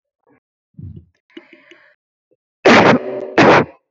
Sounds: Cough